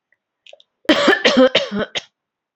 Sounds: Cough